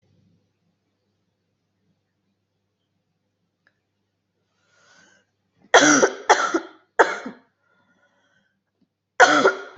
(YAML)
expert_labels:
- quality: good
  cough_type: dry
  dyspnea: false
  wheezing: false
  stridor: false
  choking: false
  congestion: false
  nothing: true
  diagnosis: lower respiratory tract infection
  severity: mild
age: 38
gender: female
respiratory_condition: false
fever_muscle_pain: false
status: symptomatic